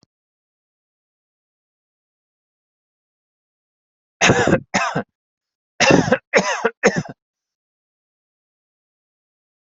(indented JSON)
{
  "expert_labels": [
    {
      "quality": "good",
      "cough_type": "dry",
      "dyspnea": false,
      "wheezing": false,
      "stridor": false,
      "choking": false,
      "congestion": false,
      "nothing": true,
      "diagnosis": "upper respiratory tract infection",
      "severity": "mild"
    }
  ],
  "age": 42,
  "gender": "male",
  "respiratory_condition": false,
  "fever_muscle_pain": false,
  "status": "symptomatic"
}